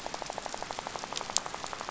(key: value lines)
label: biophony, rattle
recorder: SoundTrap 500